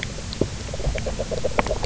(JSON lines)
{"label": "biophony, knock croak", "recorder": "SoundTrap 300"}